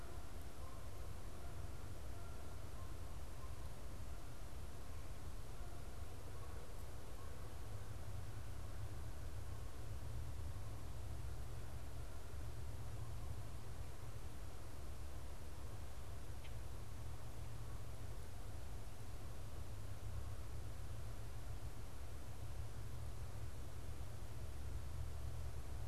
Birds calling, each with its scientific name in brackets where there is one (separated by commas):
Canada Goose (Branta canadensis), unidentified bird